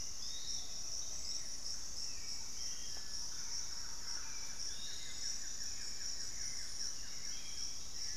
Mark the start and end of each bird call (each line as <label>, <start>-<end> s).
Thrush-like Wren (Campylorhynchus turdinus), 0.0-4.6 s
Hauxwell's Thrush (Turdus hauxwelli), 0.0-8.2 s
Piratic Flycatcher (Legatus leucophaius), 0.0-8.2 s
Buff-throated Woodcreeper (Xiphorhynchus guttatus), 3.1-7.9 s